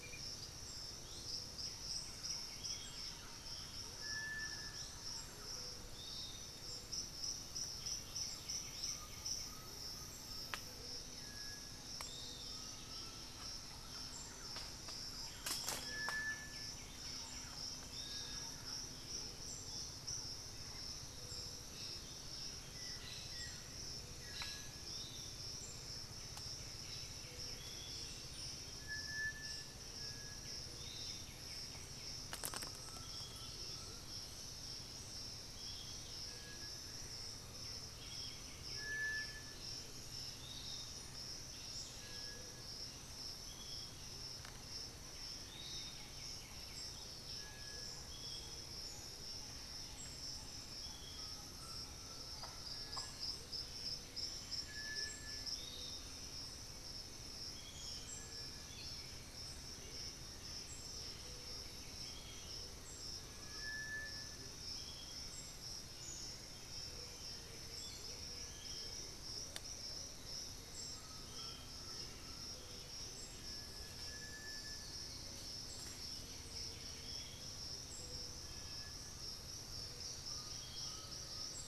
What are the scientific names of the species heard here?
Pachyramphus polychopterus, Legatus leucophaius, Campylorhynchus turdinus, Crypturellus undulatus, unidentified bird, Saltator maximus, Xiphorhynchus guttatus, Taraba major, Momotus momota, Turdus ignobilis, Patagioenas plumbea